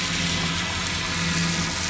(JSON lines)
{"label": "anthrophony, boat engine", "recorder": "SoundTrap 500"}